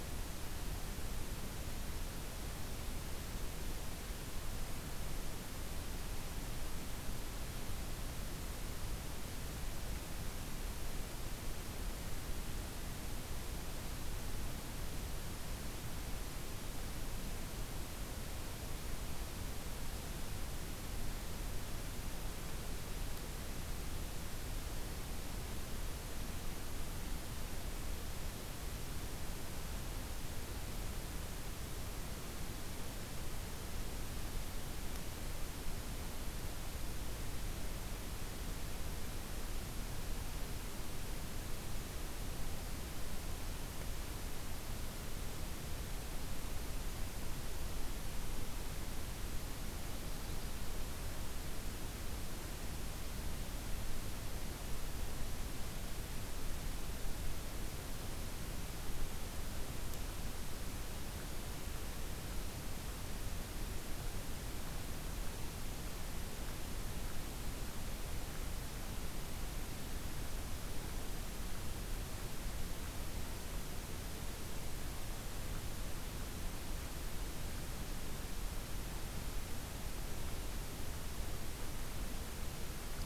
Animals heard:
forest ambience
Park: Hubbard Brook Experimental Forest